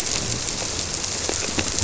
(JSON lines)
{"label": "biophony", "recorder": "SoundTrap 300"}